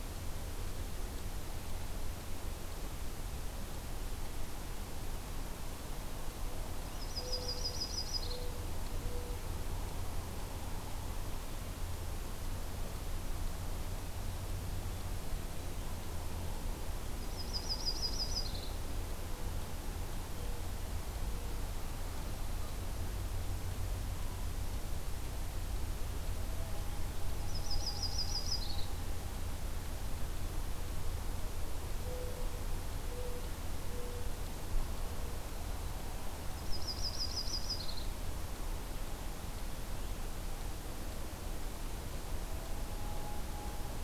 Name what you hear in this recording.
Mourning Dove, Yellow-rumped Warbler